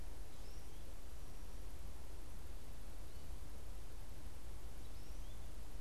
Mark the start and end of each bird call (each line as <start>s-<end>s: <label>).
0.0s-5.8s: American Goldfinch (Spinus tristis)